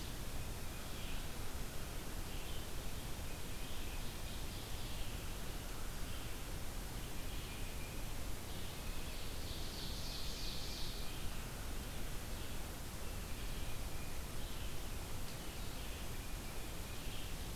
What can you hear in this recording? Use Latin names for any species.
Vireo olivaceus, Seiurus aurocapilla, Baeolophus bicolor